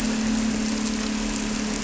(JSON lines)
{"label": "anthrophony, boat engine", "recorder": "SoundTrap 300"}